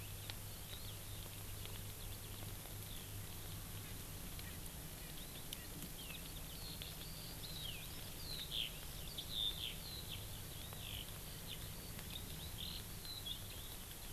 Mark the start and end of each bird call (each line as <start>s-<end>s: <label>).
3.9s-4.0s: Erckel's Francolin (Pternistis erckelii)
4.5s-4.6s: Erckel's Francolin (Pternistis erckelii)
5.0s-5.2s: Erckel's Francolin (Pternistis erckelii)
5.2s-13.8s: Eurasian Skylark (Alauda arvensis)